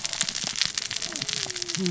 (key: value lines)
label: biophony, cascading saw
recorder: SoundTrap 600 or HydroMoth